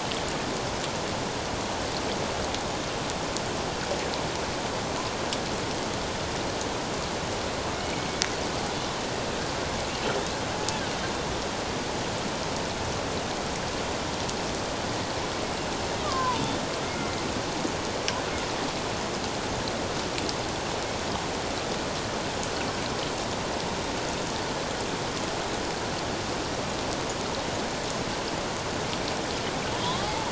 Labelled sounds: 7.7	8.1	killer whale, Bigg's (transient), 2.1 to 2.4 kHz
16.0	17.2	killer whale, Bigg's (transient), 0.88 to 2.2 kHz
29.8	30.3	killer whale, Bigg's (transient), 0.78 to 1.3 kHz

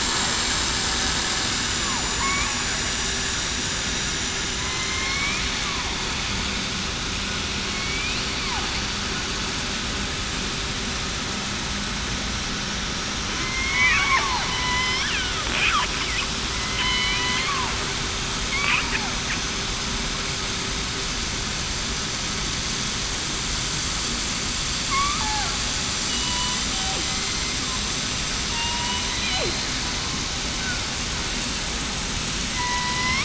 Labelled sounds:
0.0	1.0	vessel noise, 7.4 to 7.6 kHz
1.6	2.5	vessel noise, 7.0 to 7.4 kHz
3.9	4.4	vessel noise, 7.1 to 7.3 kHz
4.6	5.4	killer whale, southern resident, 1.0 to 2.5 kHz
7.7	8.2	killer whale, southern resident, 2.2 to 2.7 kHz
13.4	14.0	killer whale, southern resident, 2.0 to 2.7 kHz
14.6	15.0	killer whale, southern resident, 2.0 to 3.1 kHz
16.8	17.4	killer whale, southern resident, 2.1 to 4.1 kHz
26.0	26.5	killer whale, southern resident, 2.9 to 3.0 kHz
27.1	27.4	killer whale, southern resident, 4.1 to 4.2 kHz
28.5	29.7	killer whale, southern resident, 0.91 to 4.2 kHz
32.5	33.2	killer whale, southern resident, 1.9 to 2.4 kHz

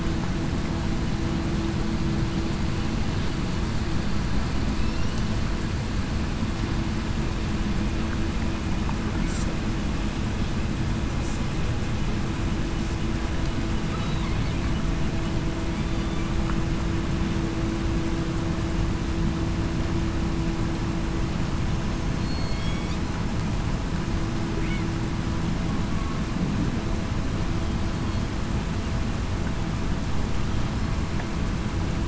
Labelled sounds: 15.8	16.2	killer whale, southern resident, 3.5 to 3.6 kHz
22.2	22.7	killer whale, southern resident, 4.3 to 4.4 kHz

